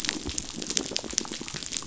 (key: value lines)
label: biophony
recorder: SoundTrap 500